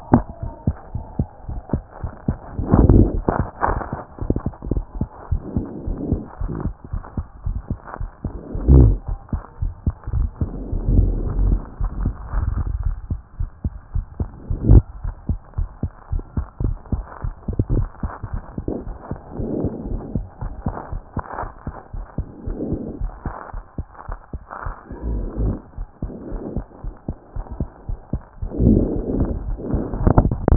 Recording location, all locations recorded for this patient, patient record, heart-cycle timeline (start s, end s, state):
pulmonary valve (PV)
pulmonary valve (PV)+tricuspid valve (TV)+mitral valve (MV)
#Age: Child
#Sex: Female
#Height: 110.0 cm
#Weight: 16.1 kg
#Pregnancy status: False
#Murmur: Absent
#Murmur locations: nan
#Most audible location: nan
#Systolic murmur timing: nan
#Systolic murmur shape: nan
#Systolic murmur grading: nan
#Systolic murmur pitch: nan
#Systolic murmur quality: nan
#Diastolic murmur timing: nan
#Diastolic murmur shape: nan
#Diastolic murmur grading: nan
#Diastolic murmur pitch: nan
#Diastolic murmur quality: nan
#Outcome: Abnormal
#Campaign: 2014 screening campaign
0.00	4.24	unannotated
4.24	4.36	S1
4.36	4.46	systole
4.46	4.54	S2
4.54	4.74	diastole
4.74	4.84	S1
4.84	4.98	systole
4.98	5.08	S2
5.08	5.30	diastole
5.30	5.42	S1
5.42	5.56	systole
5.56	5.66	S2
5.66	5.86	diastole
5.86	5.98	S1
5.98	6.10	systole
6.10	6.20	S2
6.20	6.42	diastole
6.42	6.52	S1
6.52	6.64	systole
6.64	6.74	S2
6.74	6.92	diastole
6.92	7.02	S1
7.02	7.16	systole
7.16	7.26	S2
7.26	7.46	diastole
7.46	7.58	S1
7.58	7.70	systole
7.70	7.80	S2
7.80	7.99	diastole
7.99	8.10	S1
8.10	8.24	systole
8.24	8.32	S2
8.32	8.53	diastole
8.53	30.56	unannotated